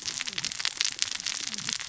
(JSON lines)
{"label": "biophony, cascading saw", "recorder": "SoundTrap 600 or HydroMoth"}